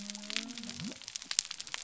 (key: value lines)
label: biophony
recorder: SoundTrap 300